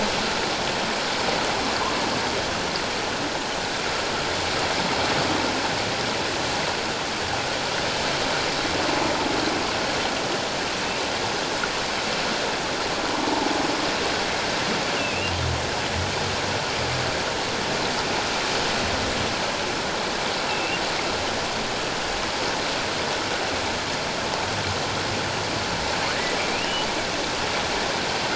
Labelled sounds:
13.1	13.5	humpback whale, 0.78 to 1.1 kHz
14.9	15.4	humpback whale, 2.4 to 3.0 kHz
20.4	20.8	humpback whale, 2.6 to 2.8 kHz
26.5	26.9	humpback whale, 2.3 to 3.0 kHz

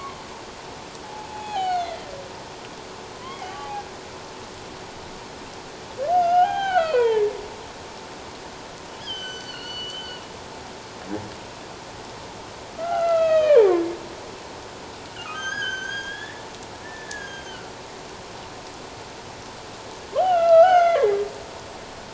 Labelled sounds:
1.2	2.1	humpback whale, 0.78 to 4.6 kHz
3.2	3.9	humpback whale, 0.78 to 3.2 kHz
6.1	7.3	humpback whale, 0.78 to 5.1 kHz
9.0	10.2	humpback whale, 1.4 to 7.7 kHz
12.8	13.8	humpback whale, 0.78 to 4.1 kHz
15.1	16.5	humpback whale, 1.1 to 6.7 kHz
16.8	17.7	humpback whale, 1.3 to 6.8 kHz
20.1	21.2	humpback whale, 1.2 to 6.6 kHz

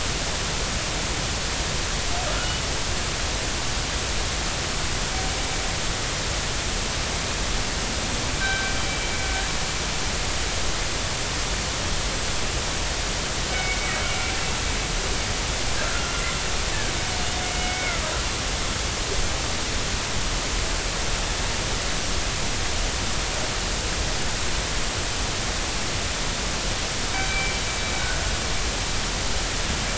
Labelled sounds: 8.4	8.7	killer whale, northern resident, G clan, 1.5 to 3.9 kHz
13.5	14.0	killer whale, northern resident, G clan, 2.1 to 2.3 kHz
15.8	16.1	killer whale, northern resident, G clan, 1.3 to 1.5 kHz
17.4	18.0	killer whale, northern resident, G clan, 2.0 to 2.3 kHz
27.1	27.5	killer whale, northern resident, G clan, 2.2 to 2.4 kHz

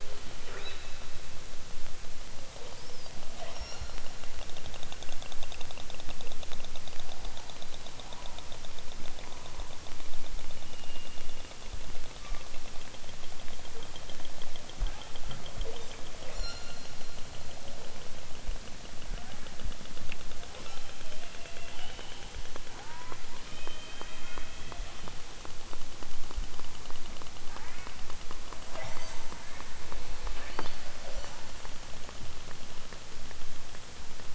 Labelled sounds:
0.4	1.1	killer whale, southern Alaska resident, 0.51 to 4.4 kHz
3.3	4.1	killer whale, southern Alaska resident, 0.78 to 7.4 kHz
14.8	17.1	killer whale, southern Alaska resident, 0.60 to 8.0 kHz
20.5	21.2	killer whale, southern Alaska resident, 0.78 to 8.0 kHz
22.6	25.1	killer whale, southern Alaska resident, 0.46 to 4.3 kHz
27.5	28.0	killer whale, southern Alaska resident, 0.60 to 2.9 kHz
28.6	29.5	killer whale, southern Alaska resident, 0.28 to 8.0 kHz
30.3	31.4	killer whale, southern Alaska resident, 0.18 to 8.0 kHz

